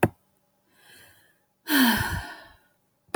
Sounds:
Sigh